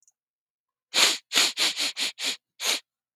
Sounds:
Sniff